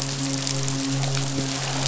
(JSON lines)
{"label": "biophony, midshipman", "recorder": "SoundTrap 500"}